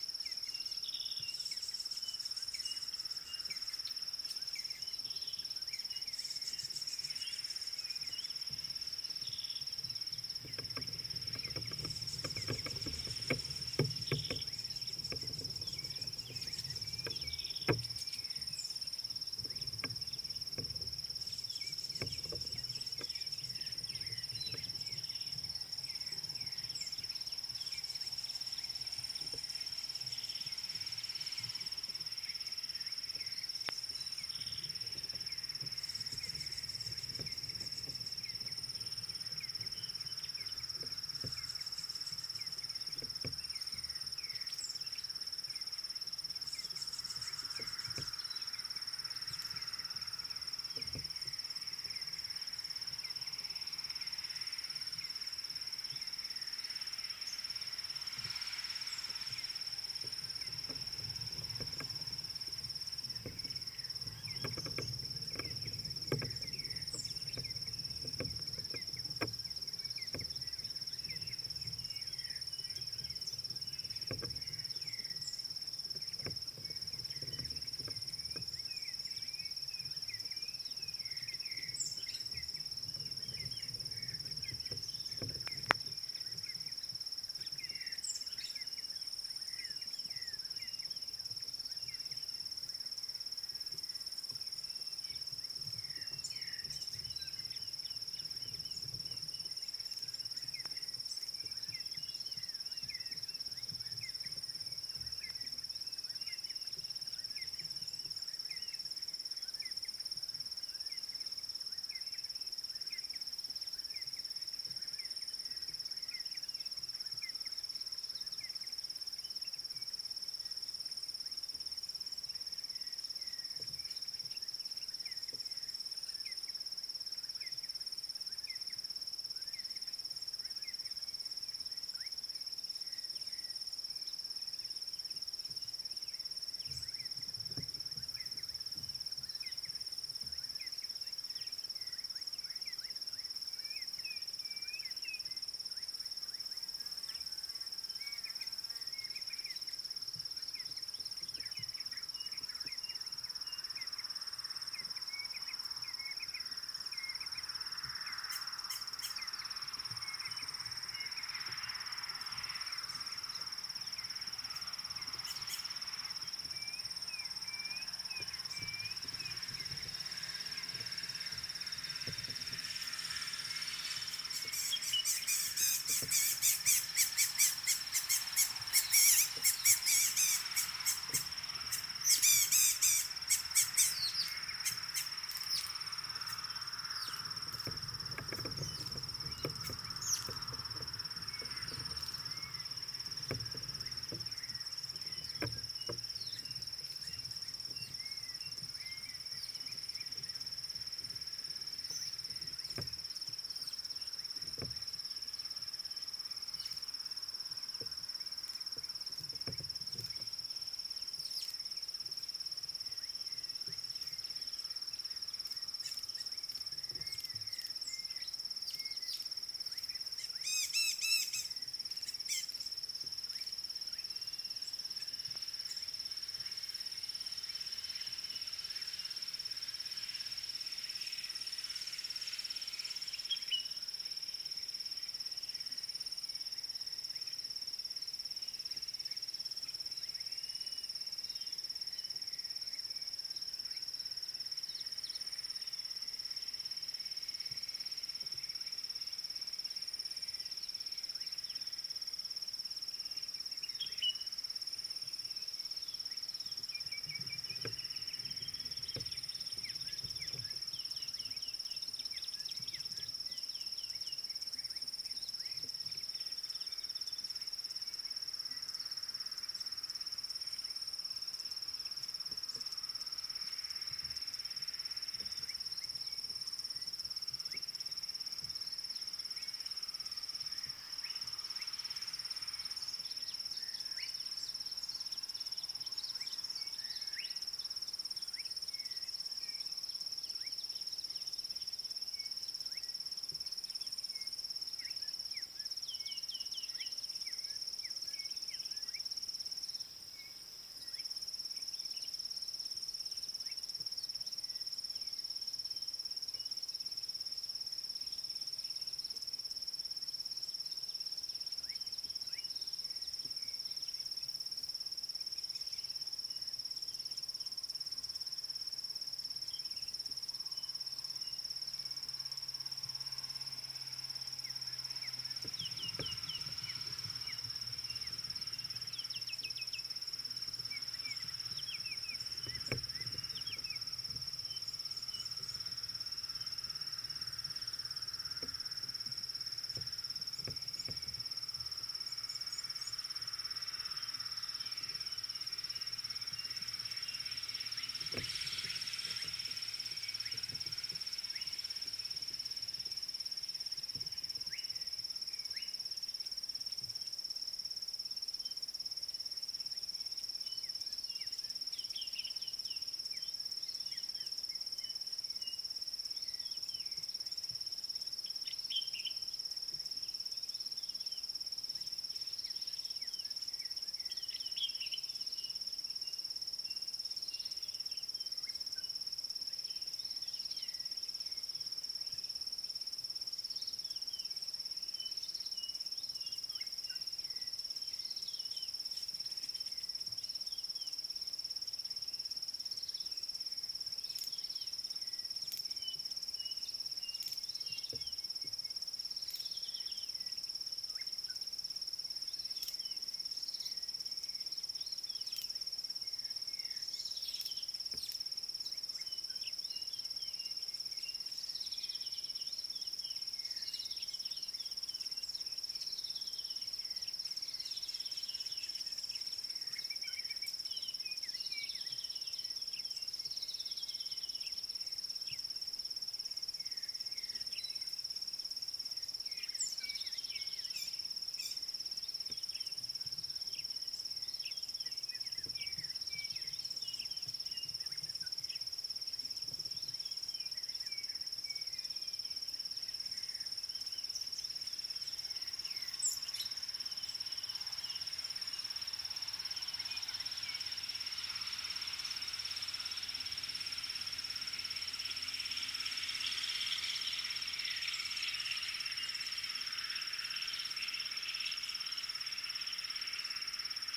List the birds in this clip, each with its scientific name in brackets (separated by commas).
Rattling Cisticola (Cisticola chiniana), Klaas's Cuckoo (Chrysococcyx klaas), White-rumped Shrike (Eurocephalus ruppelli), D'Arnaud's Barbet (Trachyphonus darnaudii), Dideric Cuckoo (Chrysococcyx caprius), White Helmetshrike (Prionops plumatus), African Bare-eyed Thrush (Turdus tephronotus), Red-backed Scrub-Robin (Cercotrichas leucophrys), Slate-colored Boubou (Laniarius funebris), Common Bulbul (Pycnonotus barbatus), Red-cheeked Cordonbleu (Uraeginthus bengalus), Blue-naped Mousebird (Urocolius macrourus)